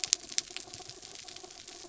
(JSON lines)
{"label": "anthrophony, mechanical", "recorder": "SoundTrap 300"}